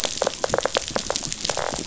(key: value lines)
label: biophony, pulse
recorder: SoundTrap 500